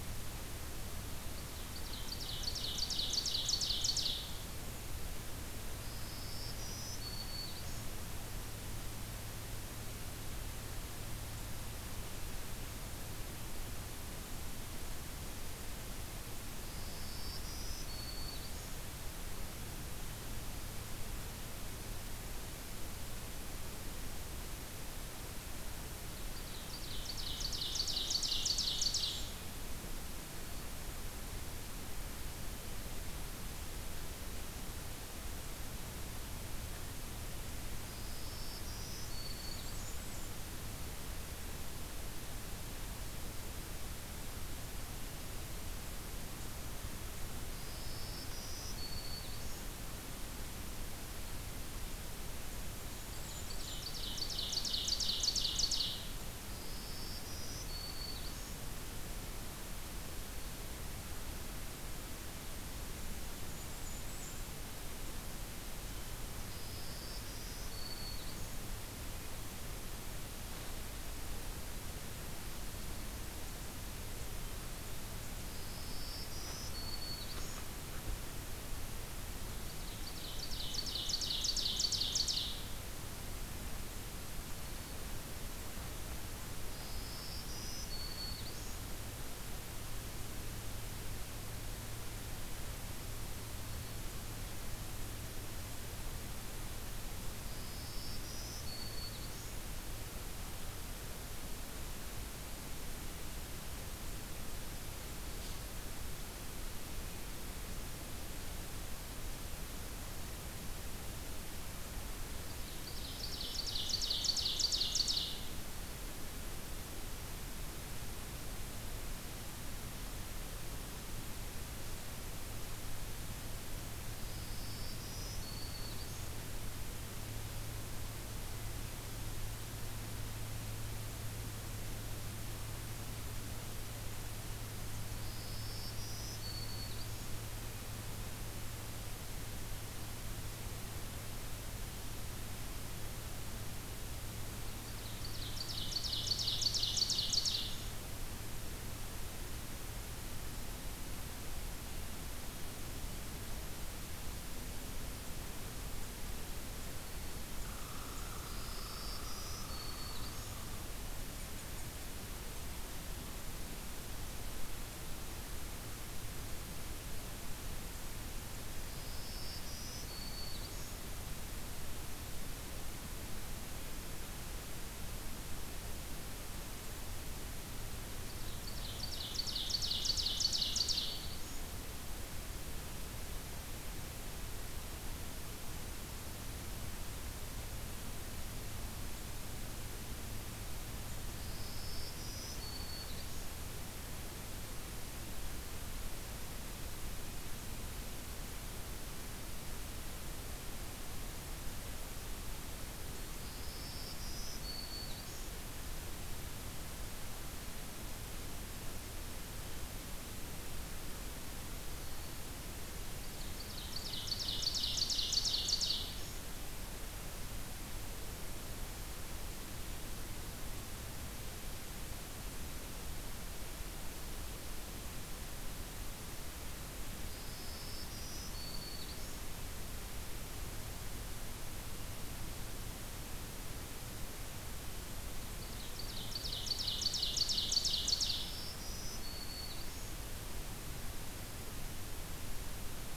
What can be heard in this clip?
Ovenbird, Black-throated Green Warbler, Blackburnian Warbler, Red Squirrel